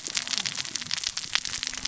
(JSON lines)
{"label": "biophony, cascading saw", "recorder": "SoundTrap 600 or HydroMoth"}